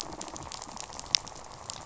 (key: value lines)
label: biophony, rattle
recorder: SoundTrap 500